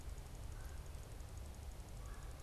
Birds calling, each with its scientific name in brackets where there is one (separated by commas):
Red-bellied Woodpecker (Melanerpes carolinus)